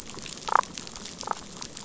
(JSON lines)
{"label": "biophony, damselfish", "recorder": "SoundTrap 500"}